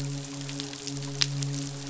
{"label": "biophony, midshipman", "recorder": "SoundTrap 500"}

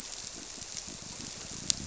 {"label": "biophony", "recorder": "SoundTrap 300"}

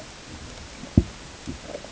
{"label": "ambient", "recorder": "HydroMoth"}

